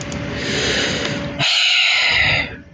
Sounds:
Sigh